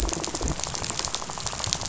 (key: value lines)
label: biophony, rattle
recorder: SoundTrap 500